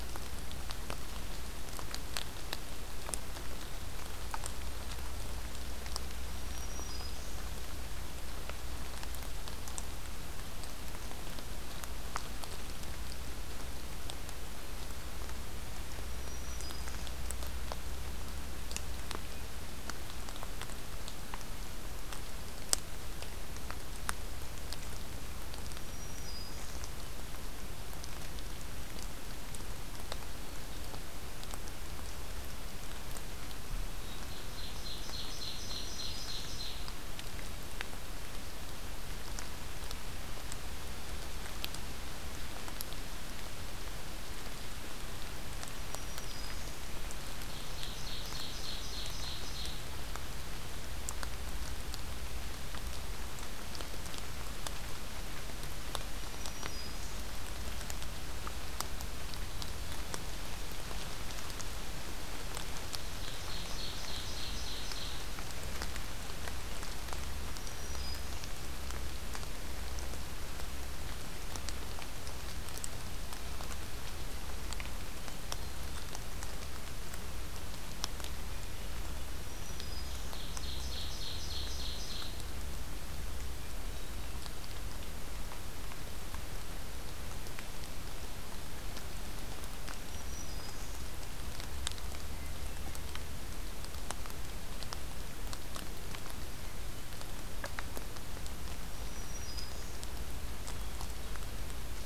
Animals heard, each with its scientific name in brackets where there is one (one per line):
Ovenbird (Seiurus aurocapilla)
Black-throated Green Warbler (Setophaga virens)